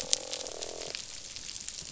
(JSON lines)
{"label": "biophony, croak", "recorder": "SoundTrap 500"}